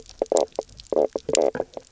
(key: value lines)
label: biophony, knock croak
recorder: SoundTrap 300